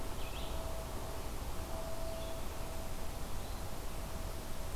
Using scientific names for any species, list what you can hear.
Vireo olivaceus